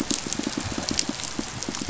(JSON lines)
{"label": "biophony, pulse", "recorder": "SoundTrap 500"}